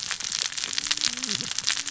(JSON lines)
{"label": "biophony, cascading saw", "recorder": "SoundTrap 600 or HydroMoth"}